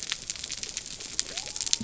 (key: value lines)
label: biophony
recorder: SoundTrap 300